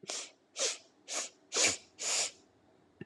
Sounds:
Sniff